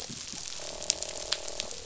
{"label": "biophony, croak", "recorder": "SoundTrap 500"}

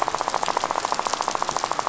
{"label": "biophony, rattle", "recorder": "SoundTrap 500"}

